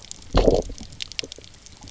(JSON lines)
{"label": "biophony, low growl", "recorder": "SoundTrap 300"}